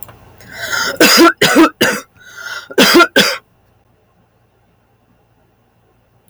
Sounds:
Cough